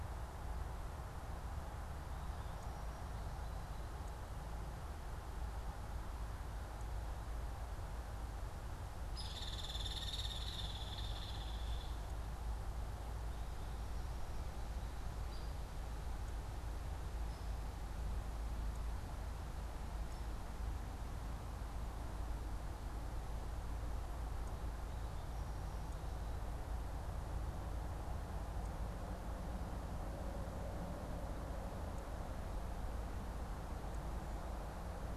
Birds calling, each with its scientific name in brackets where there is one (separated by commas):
Hairy Woodpecker (Dryobates villosus)